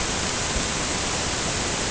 {"label": "ambient", "recorder": "HydroMoth"}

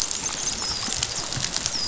{"label": "biophony, dolphin", "recorder": "SoundTrap 500"}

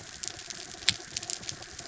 {"label": "anthrophony, mechanical", "recorder": "SoundTrap 300"}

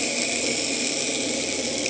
{"label": "anthrophony, boat engine", "recorder": "HydroMoth"}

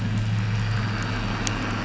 {"label": "anthrophony, boat engine", "recorder": "SoundTrap 500"}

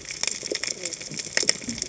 {"label": "biophony, cascading saw", "recorder": "HydroMoth"}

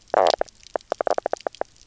{"label": "biophony, knock croak", "recorder": "SoundTrap 300"}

